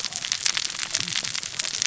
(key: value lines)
label: biophony, cascading saw
recorder: SoundTrap 600 or HydroMoth